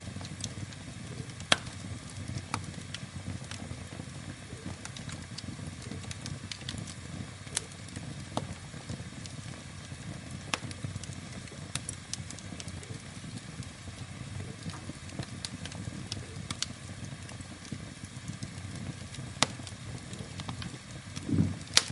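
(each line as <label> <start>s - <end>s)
A fire crackles and pops with a continuous tone and irregular small thuds. 0.0s - 21.9s
Crackling sounds of a burning fire. 1.3s - 2.1s
Crackling sounds of a burning fire. 7.5s - 8.0s
A burning fire followed by an abrupt thud. 8.3s - 8.6s
An abrupt thud from a burning fire in winter. 8.3s - 8.6s
Crackling and popping of a burning fire. 10.5s - 10.8s
Crackling sounds of a burning fire. 19.3s - 19.7s
Crackling sounds of a burning fire. 21.7s - 21.9s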